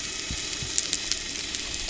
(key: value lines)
label: anthrophony, boat engine
recorder: SoundTrap 300